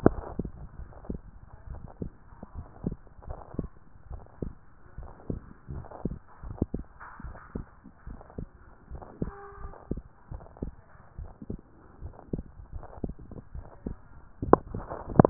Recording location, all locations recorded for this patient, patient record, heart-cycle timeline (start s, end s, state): tricuspid valve (TV)
pulmonary valve (PV)+tricuspid valve (TV)+mitral valve (MV)
#Age: Child
#Sex: Female
#Height: 123.0 cm
#Weight: 30.0 kg
#Pregnancy status: False
#Murmur: Unknown
#Murmur locations: nan
#Most audible location: nan
#Systolic murmur timing: nan
#Systolic murmur shape: nan
#Systolic murmur grading: nan
#Systolic murmur pitch: nan
#Systolic murmur quality: nan
#Diastolic murmur timing: nan
#Diastolic murmur shape: nan
#Diastolic murmur grading: nan
#Diastolic murmur pitch: nan
#Diastolic murmur quality: nan
#Outcome: Abnormal
#Campaign: 2014 screening campaign
0.26	0.38	systole
0.38	0.52	S2
0.52	0.78	diastole
0.78	0.88	S1
0.88	1.08	systole
1.08	1.22	S2
1.22	1.70	diastole
1.70	1.82	S1
1.82	2.00	systole
2.00	2.12	S2
2.12	2.56	diastole
2.56	2.66	S1
2.66	2.84	systole
2.84	2.98	S2
2.98	3.28	diastole
3.28	3.38	S1
3.38	3.54	systole
3.54	3.70	S2
3.70	4.10	diastole
4.10	4.22	S1
4.22	4.42	systole
4.42	4.54	S2
4.54	4.98	diastole
4.98	5.10	S1
5.10	5.28	systole
5.28	5.42	S2
5.42	5.72	diastole
5.72	5.86	S1
5.86	6.04	systole
6.04	6.18	S2
6.18	6.44	diastole
6.44	6.58	S1
6.58	6.74	systole
6.74	6.86	S2
6.86	7.24	diastole
7.24	7.36	S1
7.36	7.56	systole
7.56	7.66	S2
7.66	8.08	diastole
8.08	8.18	S1
8.18	8.38	systole
8.38	8.48	S2
8.48	8.92	diastole
8.92	9.02	S1
9.02	9.20	systole
9.20	9.34	S2
9.34	9.60	diastole
9.60	9.72	S1
9.72	9.90	systole
9.90	10.04	S2
10.04	10.32	diastole
10.32	10.42	S1
10.42	10.62	systole
10.62	10.74	S2
10.74	11.20	diastole
11.20	11.30	S1
11.30	11.50	systole
11.50	11.60	S2
11.60	12.02	diastole
12.02	12.12	S1
12.12	12.32	systole
12.32	12.46	S2
12.46	12.74	diastole
12.74	12.84	S1
12.84	13.02	systole
13.02	13.16	S2
13.16	13.54	diastole
13.54	13.64	S1
13.64	13.86	systole
13.86	13.98	S2
13.98	14.42	diastole
14.42	14.62	S1
14.62	14.72	systole
14.72	14.88	S2
14.88	15.10	diastole
15.10	15.30	S1